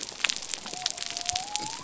{"label": "biophony", "recorder": "SoundTrap 300"}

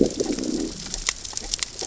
{"label": "biophony, growl", "recorder": "SoundTrap 600 or HydroMoth"}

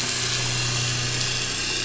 {"label": "anthrophony, boat engine", "recorder": "SoundTrap 500"}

